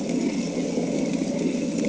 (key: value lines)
label: anthrophony, boat engine
recorder: HydroMoth